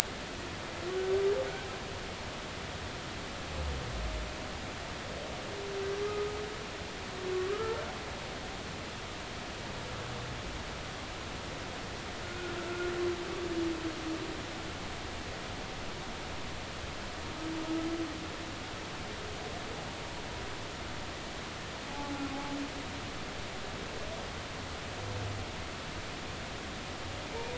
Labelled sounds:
7.5	7.8	humpback whale, 1.1 to 1.4 kHz
12.2	12.5	humpback whale, 1.4 to 1.5 kHz
21.9	22.1	humpback whale, 0.80 to 0.90 kHz

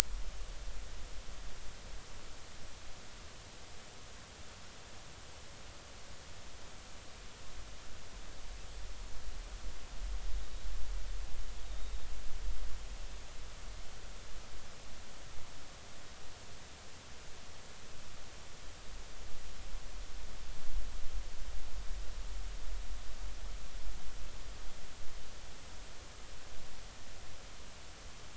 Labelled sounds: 11.6	11.9	Pacific white-sided dolphin, 3.6 to 3.8 kHz

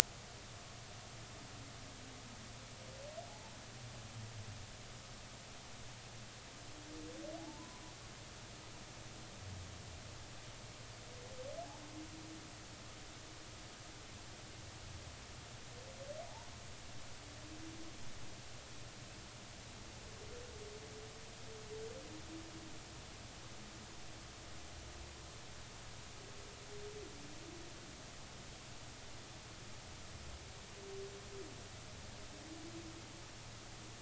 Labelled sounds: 7.4	7.8	humpback whale, 0.80 to 1.1 kHz
16.2	16.5	humpback whale, 0.80 to 1.0 kHz

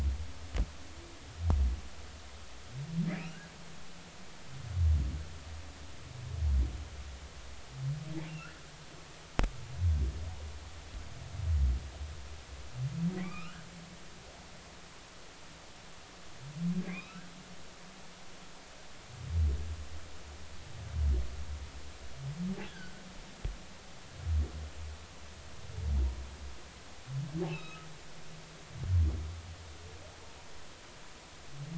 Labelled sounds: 3.1	3.5	humpback whale, 1.3 to 2.9 kHz
8.3	8.5	humpback whale, 2.6 to 2.8 kHz
13.2	13.6	humpback whale, 1.0 to 3.0 kHz
16.8	17.3	humpback whale, 1.0 to 4.0 kHz
22.7	23.0	humpback whale, 1.4 to 1.7 kHz
27.5	27.9	humpback whale, 1.2 to 5.2 kHz

